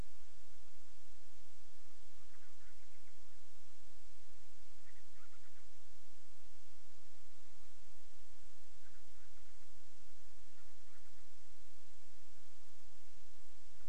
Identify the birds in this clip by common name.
Band-rumped Storm-Petrel